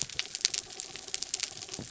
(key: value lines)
label: anthrophony, mechanical
recorder: SoundTrap 300